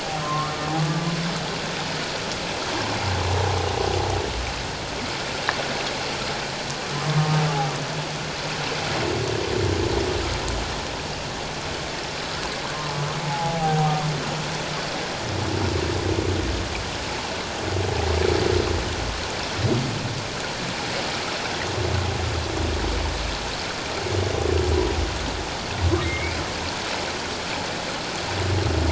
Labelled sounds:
0.2	1.1	humpback whale, 1.0 to 1.2 kHz
6.9	7.3	humpback whale, 0.97 to 1.1 kHz
13.2	14.0	humpback whale, 0.78 to 0.91 kHz
26.0	26.4	humpback whale, 2.0 to 2.6 kHz

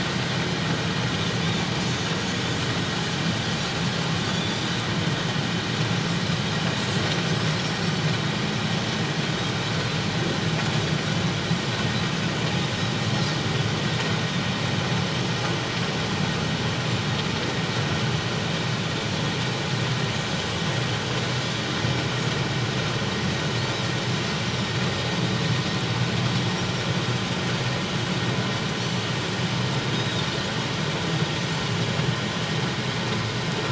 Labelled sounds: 1.8	2.1	Pacific white-sided dolphin, 6.0 to 6.8 kHz
4.2	4.8	Pacific white-sided dolphin, 3.3 to 4.8 kHz
30.0	30.3	Pacific white-sided dolphin, 3.5 to 3.9 kHz

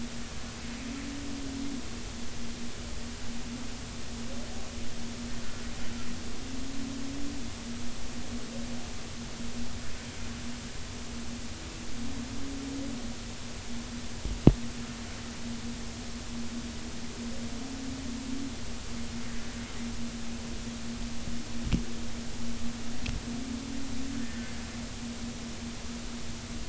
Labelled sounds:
24.2	24.5	humpback whale, 1.6 to 1.9 kHz

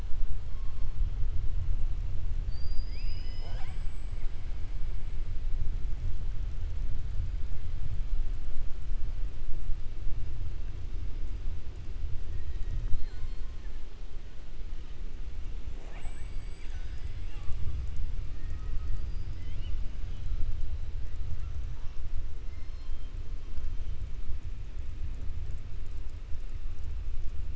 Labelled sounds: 18.3	19.4	killer whale, 1.1 to 5.5 kHz
22.5	23.1	killer whale, 3.1 to 5.3 kHz

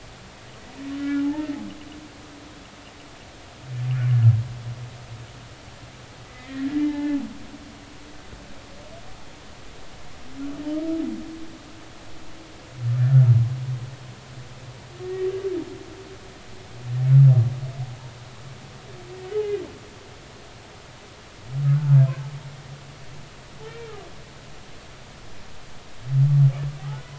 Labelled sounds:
1.0	1.6	humpback whale, 0.80 to 1.9 kHz
6.3	7.2	humpback whale, 0.80 to 2.2 kHz
13.0	13.3	humpback whale, 1.3 to 1.5 kHz
15.0	15.3	humpback whale, 1.8 to 2.0 kHz
19.4	19.6	humpback whale, 1.6 to 1.7 kHz

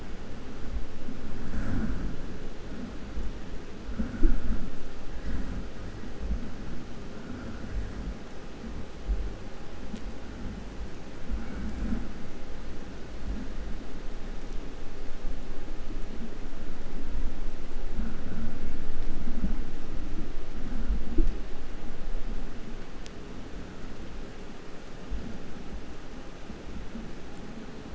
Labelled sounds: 11.3	12.7	killer whale, 0.59 to 2.9 kHz

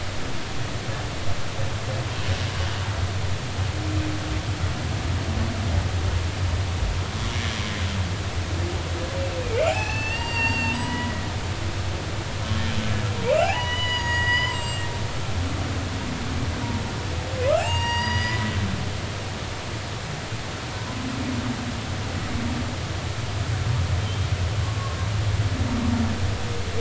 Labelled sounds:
9.4	11.2	humpback whale, 0.80 to 6.5 kHz
13.2	14.9	humpback whale, 0.80 to 8.0 kHz
17.5	18.5	humpback whale, 0.80 to 7.6 kHz
24.0	24.3	humpback whale, 3.0 to 3.3 kHz
24.6	25.0	humpback whale, 1.0 to 1.2 kHz

